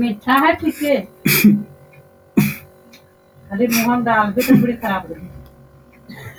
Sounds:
Sneeze